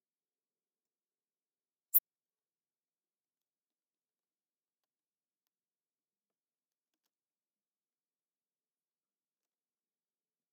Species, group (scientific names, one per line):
Steropleurus andalusius
Orthoptera